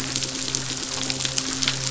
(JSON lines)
{"label": "biophony", "recorder": "SoundTrap 500"}
{"label": "biophony, midshipman", "recorder": "SoundTrap 500"}